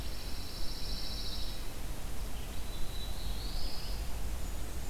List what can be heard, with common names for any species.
Pine Warbler, Red-eyed Vireo, Black-throated Blue Warbler, Blackburnian Warbler